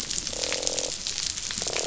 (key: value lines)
label: biophony, croak
recorder: SoundTrap 500